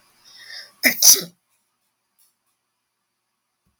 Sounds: Sneeze